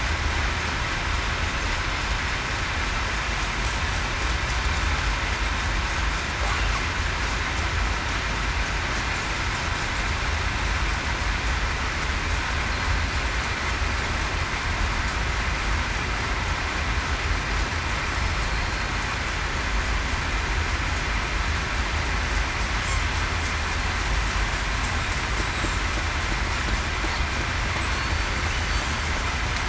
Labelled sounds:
18.5	18.9	killer whale, southern resident, 4.2 to 4.3 kHz
27.9	28.4	killer whale, southern resident, 4.3 to 4.6 kHz

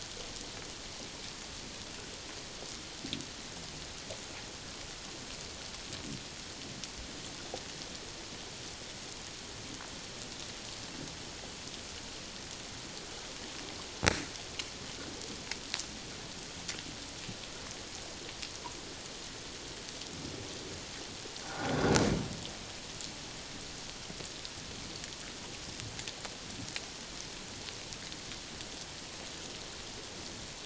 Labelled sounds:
21.4	21.7	humpback whale, 0.78 to 1.6 kHz

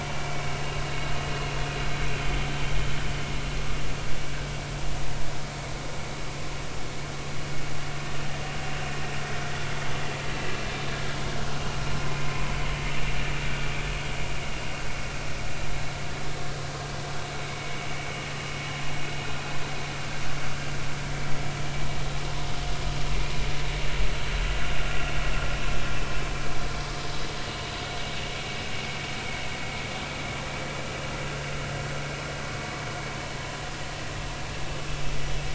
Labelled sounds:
0.2	0.4	vessel noise, 2.2 to 2.4 kHz

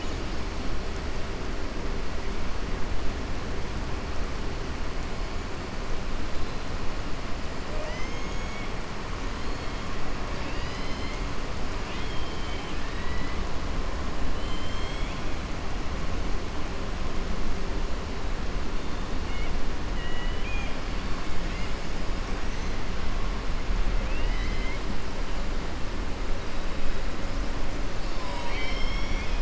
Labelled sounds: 7.7	8.7	killer whale, southern resident, 0.58 to 3.3 kHz
11.8	13.4	killer whale, southern resident, 1.7 to 4.7 kHz
14.3	15.2	killer whale, southern resident, 2.1 to 5.2 kHz
19.9	20.8	killer whale, southern resident, 1.9 to 3.3 kHz
24.0	24.8	killer whale, southern resident, 1.9 to 5.8 kHz
27.9	29.4	killer whale, southern resident, 0.96 to 6.1 kHz

